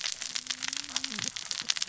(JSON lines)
{"label": "biophony, cascading saw", "recorder": "SoundTrap 600 or HydroMoth"}